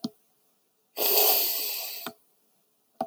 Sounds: Sniff